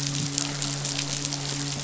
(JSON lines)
{"label": "biophony, midshipman", "recorder": "SoundTrap 500"}